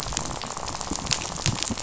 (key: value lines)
label: biophony, rattle
recorder: SoundTrap 500